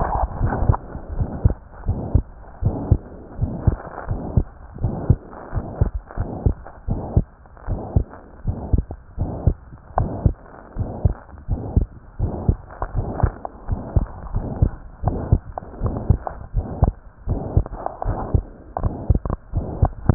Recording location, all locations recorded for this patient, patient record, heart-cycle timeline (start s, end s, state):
pulmonary valve (PV)
aortic valve (AV)+pulmonary valve (PV)+tricuspid valve (TV)+mitral valve (MV)
#Age: Child
#Sex: Female
#Height: 128.0 cm
#Weight: 24.3 kg
#Pregnancy status: False
#Murmur: Present
#Murmur locations: aortic valve (AV)+mitral valve (MV)+pulmonary valve (PV)+tricuspid valve (TV)
#Most audible location: tricuspid valve (TV)
#Systolic murmur timing: Holosystolic
#Systolic murmur shape: Plateau
#Systolic murmur grading: III/VI or higher
#Systolic murmur pitch: High
#Systolic murmur quality: Blowing
#Diastolic murmur timing: nan
#Diastolic murmur shape: nan
#Diastolic murmur grading: nan
#Diastolic murmur pitch: nan
#Diastolic murmur quality: nan
#Outcome: Normal
#Campaign: 2015 screening campaign
0.00	1.12	unannotated
1.12	1.28	S1
1.28	1.38	systole
1.38	1.52	S2
1.52	1.86	diastole
1.86	2.02	S1
2.02	2.12	systole
2.12	2.26	S2
2.26	2.62	diastole
2.62	2.76	S1
2.76	2.88	systole
2.88	3.02	S2
3.02	3.40	diastole
3.40	3.54	S1
3.54	3.66	systole
3.66	3.78	S2
3.78	4.08	diastole
4.08	4.20	S1
4.20	4.34	systole
4.34	4.46	S2
4.46	4.82	diastole
4.82	4.94	S1
4.94	5.03	systole
5.03	5.20	S2
5.20	5.52	diastole
5.52	5.64	S1
5.64	5.78	systole
5.78	5.88	S2
5.88	6.17	diastole
6.17	6.32	S1
6.32	6.44	systole
6.44	6.56	S2
6.56	6.88	diastole
6.88	7.02	S1
7.02	7.14	systole
7.14	7.26	S2
7.26	7.68	diastole
7.68	7.80	S1
7.80	7.94	systole
7.94	8.06	S2
8.06	8.42	diastole
8.42	8.56	S1
8.56	8.68	systole
8.68	8.84	S2
8.84	9.15	diastole
9.15	9.30	S1
9.30	9.42	systole
9.42	9.56	S2
9.56	9.95	diastole
9.95	10.12	S1
10.12	10.22	systole
10.22	10.36	S2
10.36	10.74	diastole
10.74	10.88	S1
10.88	11.00	systole
11.00	11.12	S2
11.12	11.47	diastole
11.47	11.64	S1
11.64	11.72	systole
11.72	11.84	S2
11.84	12.17	diastole
12.17	12.34	S1
12.34	12.44	systole
12.44	12.56	S2
12.56	12.94	diastole
12.94	13.06	S1
13.06	13.18	systole
13.18	13.34	S2
13.34	13.63	diastole
13.63	13.80	S1
13.80	13.92	systole
13.92	14.04	S2
14.04	14.31	diastole
14.31	14.44	S1
14.44	14.58	systole
14.58	14.74	S2
14.74	15.02	diastole
15.02	15.15	S1
15.15	15.29	systole
15.29	15.44	S2
15.44	15.79	diastole
15.79	15.96	S1
15.96	16.06	systole
16.06	16.18	S2
16.18	16.51	diastole
16.51	16.66	S1
16.66	16.78	systole
16.78	16.94	S2
16.94	17.23	diastole
17.23	17.42	S1
17.42	17.52	systole
17.52	17.68	S2
17.68	18.02	diastole
18.02	18.18	S1
18.18	18.30	systole
18.30	18.42	S2
18.42	18.79	diastole
18.79	18.96	S1
18.96	20.14	unannotated